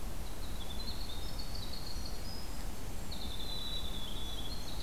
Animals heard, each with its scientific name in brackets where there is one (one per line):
Winter Wren (Troglodytes hiemalis)